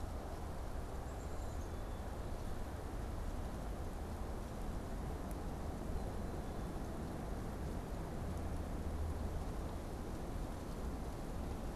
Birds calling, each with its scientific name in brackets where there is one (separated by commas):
Black-capped Chickadee (Poecile atricapillus)